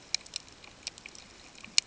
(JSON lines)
{"label": "ambient", "recorder": "HydroMoth"}